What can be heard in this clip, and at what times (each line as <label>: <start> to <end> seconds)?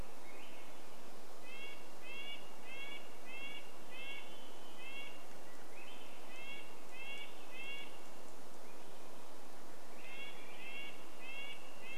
Swainson's Thrush song: 0 to 2 seconds
Red-breasted Nuthatch song: 0 to 8 seconds
Swainson's Thrush song: 4 to 6 seconds
Varied Thrush song: 4 to 6 seconds
Swainson's Thrush song: 8 to 12 seconds
Red-breasted Nuthatch song: 10 to 12 seconds